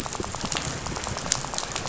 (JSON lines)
{"label": "biophony, rattle", "recorder": "SoundTrap 500"}